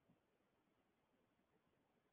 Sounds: Sigh